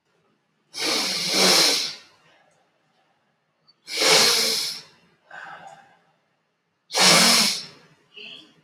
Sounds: Sniff